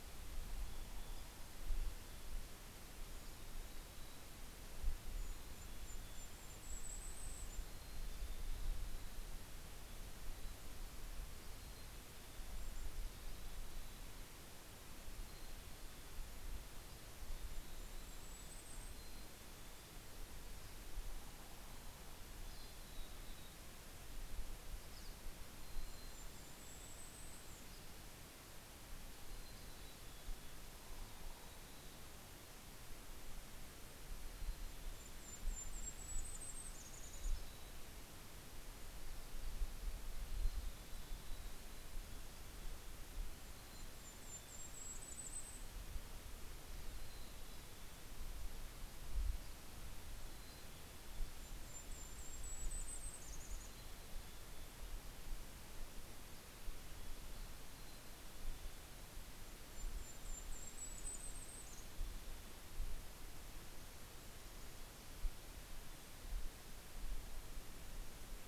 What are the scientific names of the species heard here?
Regulus satrapa, Poecile gambeli, Spinus pinus